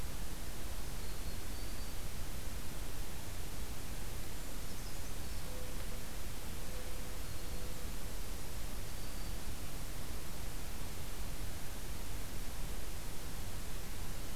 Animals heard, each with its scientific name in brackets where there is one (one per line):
Brown Creeper (Certhia americana)
Black-throated Green Warbler (Setophaga virens)
Mourning Dove (Zenaida macroura)